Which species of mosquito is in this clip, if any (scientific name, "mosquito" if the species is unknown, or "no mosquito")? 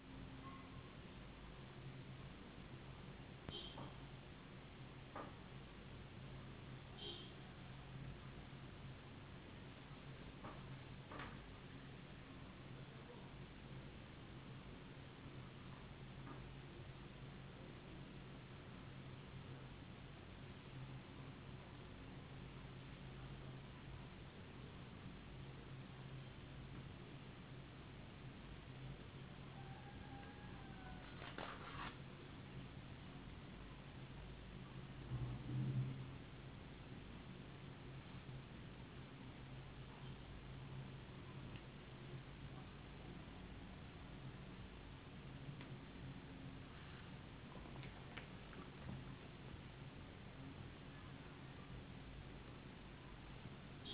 no mosquito